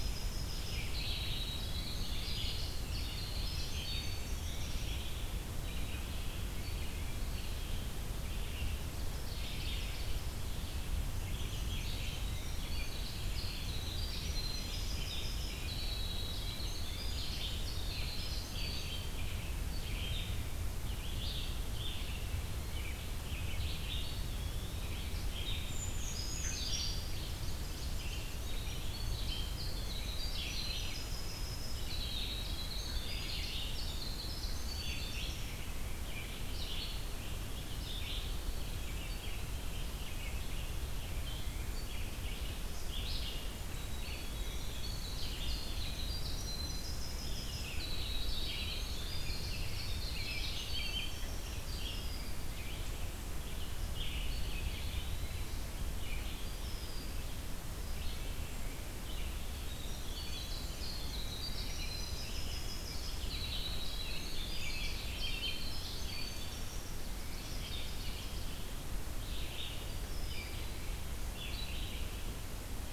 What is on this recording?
Winter Wren, Red-eyed Vireo, Eastern Wood-Pewee, Ovenbird, Black-and-white Warbler, Brown Creeper, Rose-breasted Grosbeak, Black-throated Blue Warbler, American Robin